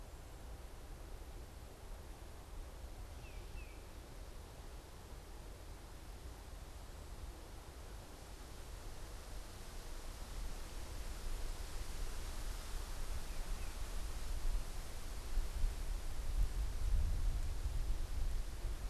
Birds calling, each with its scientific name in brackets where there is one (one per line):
Tufted Titmouse (Baeolophus bicolor)